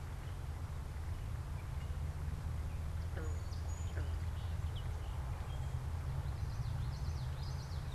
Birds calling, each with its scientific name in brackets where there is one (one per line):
Song Sparrow (Melospiza melodia)
Common Yellowthroat (Geothlypis trichas)